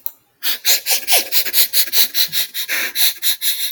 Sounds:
Sniff